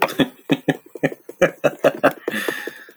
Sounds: Laughter